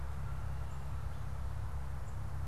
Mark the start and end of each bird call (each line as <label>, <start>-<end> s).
Black-capped Chickadee (Poecile atricapillus), 0.4-2.5 s